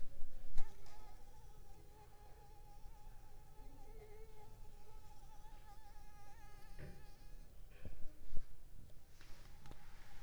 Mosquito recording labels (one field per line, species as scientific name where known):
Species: Anopheles arabiensis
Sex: female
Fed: unfed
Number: one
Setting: cup